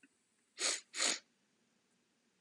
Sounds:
Sniff